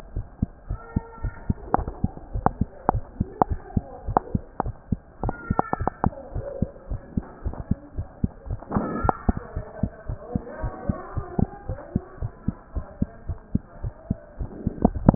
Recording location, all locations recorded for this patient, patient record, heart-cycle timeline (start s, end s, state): mitral valve (MV)
aortic valve (AV)+pulmonary valve (PV)+tricuspid valve (TV)+mitral valve (MV)
#Age: Child
#Sex: Male
#Height: 115.0 cm
#Weight: 19.7 kg
#Pregnancy status: False
#Murmur: Absent
#Murmur locations: nan
#Most audible location: nan
#Systolic murmur timing: nan
#Systolic murmur shape: nan
#Systolic murmur grading: nan
#Systolic murmur pitch: nan
#Systolic murmur quality: nan
#Diastolic murmur timing: nan
#Diastolic murmur shape: nan
#Diastolic murmur grading: nan
#Diastolic murmur pitch: nan
#Diastolic murmur quality: nan
#Outcome: Normal
#Campaign: 2015 screening campaign
0.00	0.13	unannotated
0.13	0.26	S1
0.26	0.38	systole
0.38	0.52	S2
0.52	0.68	diastole
0.68	0.80	S1
0.80	0.92	systole
0.92	1.06	S2
1.06	1.22	diastole
1.22	1.34	S1
1.34	1.44	systole
1.44	1.60	S2
1.60	1.75	diastole
1.75	1.85	S1
1.85	2.00	systole
2.00	2.14	S2
2.14	2.32	diastole
2.32	2.44	S1
2.44	2.58	systole
2.58	2.68	S2
2.68	2.88	diastole
2.88	3.04	S1
3.04	3.16	systole
3.16	3.28	S2
3.28	3.46	diastole
3.46	3.60	S1
3.60	3.72	systole
3.72	3.86	S2
3.86	4.05	diastole
4.05	4.15	S1
4.15	4.32	systole
4.32	4.44	S2
4.44	4.64	diastole
4.64	4.76	S1
4.76	4.88	systole
4.88	5.02	S2
5.02	5.22	diastole
5.22	5.36	S1
5.36	5.48	systole
5.48	5.58	S2
5.58	5.78	diastole
5.78	5.92	S1
5.92	6.02	systole
6.02	6.11	S2
6.11	6.34	diastole
6.34	6.46	S1
6.46	6.60	systole
6.60	6.67	S2
6.67	6.89	diastole
6.89	7.00	S1
7.00	7.14	systole
7.14	7.24	S2
7.24	7.43	diastole
7.43	7.53	S1
7.53	7.68	systole
7.68	7.78	S2
7.78	7.96	diastole
7.96	8.08	S1
8.08	8.20	systole
8.20	8.32	S2
8.32	8.48	diastole
8.48	8.60	S1
8.60	8.72	systole
8.72	8.86	S2
8.86	9.02	diastole
9.02	9.09	S1
9.09	9.24	systole
9.24	9.35	S2
9.35	9.54	diastole
9.54	9.66	S1
9.66	9.82	systole
9.82	9.92	S2
9.92	10.08	diastole
10.08	10.18	S1
10.18	10.33	systole
10.33	10.41	S2
10.41	10.62	diastole
10.62	10.74	S1
10.74	10.87	systole
10.87	10.94	S2
10.94	11.14	diastole
11.14	11.24	S1
11.24	11.40	systole
11.40	11.47	S2
11.47	11.68	diastole
11.68	11.80	S1
11.80	11.94	systole
11.94	12.04	S2
12.04	12.20	diastole
12.20	12.32	S1
12.32	12.44	systole
12.44	12.56	S2
12.56	12.74	diastole
12.74	12.86	S1
12.86	12.98	systole
12.98	13.10	S2
13.10	13.28	diastole
13.28	13.38	S1
13.38	13.50	systole
13.50	13.64	S2
13.64	13.82	diastole
13.82	13.94	S1
13.94	14.06	systole
14.06	14.20	S2
14.20	14.38	diastole
14.38	14.49	S1
14.49	15.15	unannotated